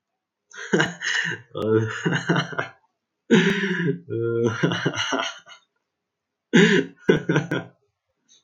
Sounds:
Laughter